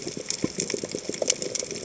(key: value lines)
label: biophony, chatter
recorder: HydroMoth